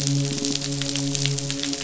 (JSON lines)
{"label": "biophony, midshipman", "recorder": "SoundTrap 500"}